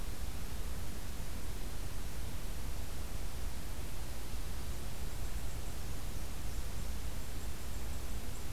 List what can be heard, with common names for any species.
Dark-eyed Junco